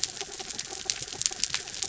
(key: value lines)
label: anthrophony, mechanical
recorder: SoundTrap 300